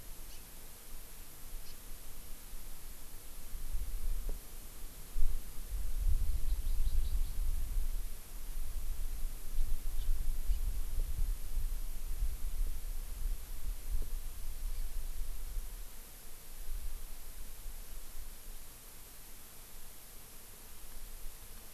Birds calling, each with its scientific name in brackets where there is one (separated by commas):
House Finch (Haemorhous mexicanus), Hawaii Amakihi (Chlorodrepanis virens)